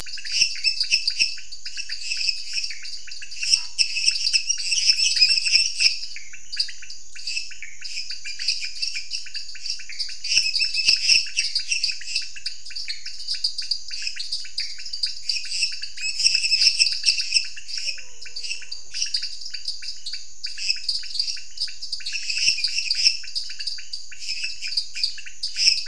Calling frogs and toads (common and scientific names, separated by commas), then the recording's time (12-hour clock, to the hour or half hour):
lesser tree frog (Dendropsophus minutus), dwarf tree frog (Dendropsophus nanus), pointedbelly frog (Leptodactylus podicipinus), Scinax fuscovarius
~8pm